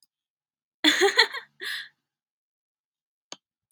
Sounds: Laughter